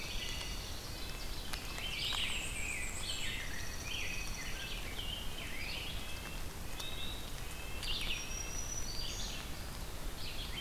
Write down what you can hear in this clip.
Dark-eyed Junco, Ovenbird, Red-eyed Vireo, Black-and-white Warbler, Rose-breasted Grosbeak, Red-breasted Nuthatch, Black-throated Green Warbler